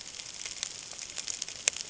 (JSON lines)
{"label": "ambient", "recorder": "HydroMoth"}